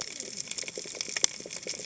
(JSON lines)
{"label": "biophony, cascading saw", "recorder": "HydroMoth"}